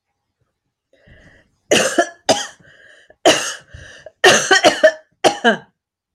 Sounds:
Cough